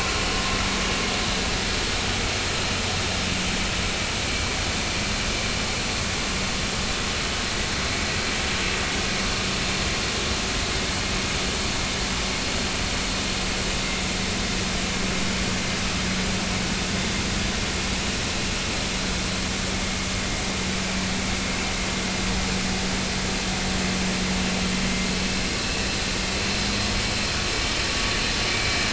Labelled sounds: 28.5	28.8	vessel noise, 2.2 to 2.4 kHz

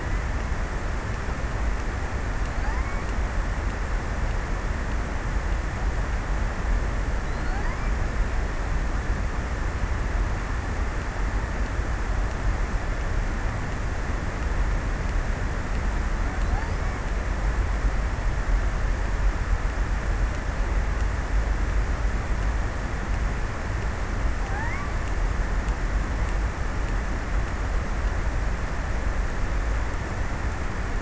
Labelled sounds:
2.1	3.5	killer whale, offshore, 0.39 to 2.6 kHz
6.6	8.7	killer whale, offshore, 0.59 to 2.7 kHz
24.2	25.3	killer whale, offshore, 0.45 to 2.5 kHz

